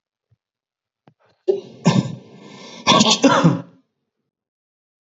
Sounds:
Sneeze